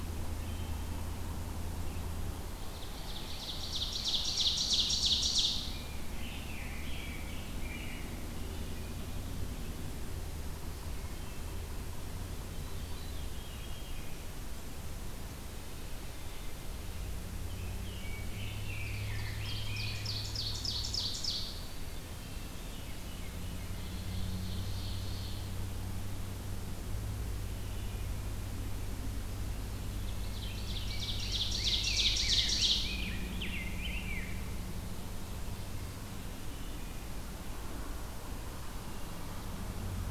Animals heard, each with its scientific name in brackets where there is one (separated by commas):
Veery (Catharus fuscescens), Rose-breasted Grosbeak (Pheucticus ludovicianus), Wood Thrush (Hylocichla mustelina), Ovenbird (Seiurus aurocapilla)